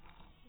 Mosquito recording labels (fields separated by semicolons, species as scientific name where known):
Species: mosquito; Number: one; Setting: cup